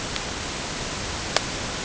{"label": "ambient", "recorder": "HydroMoth"}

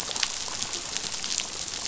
{"label": "biophony, chatter", "recorder": "SoundTrap 500"}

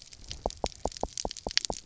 {"label": "biophony, knock", "recorder": "SoundTrap 300"}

